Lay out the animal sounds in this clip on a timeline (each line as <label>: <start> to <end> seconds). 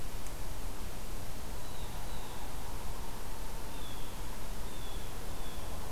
Blue Jay (Cyanocitta cristata): 1.4 to 2.5 seconds
Blue Jay (Cyanocitta cristata): 3.6 to 5.9 seconds